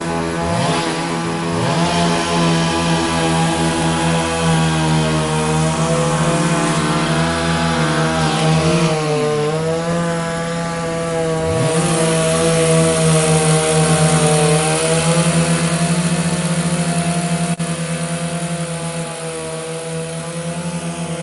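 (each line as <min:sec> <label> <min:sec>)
0:00.0 A chainsaw runs in the background and slowly fades away. 0:21.2
0:00.8 A loud chainsaw cuts, fading out toward the end. 0:09.1
0:11.5 A chainsaw starts cutting and then stops abruptly. 0:17.6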